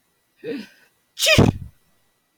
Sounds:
Sneeze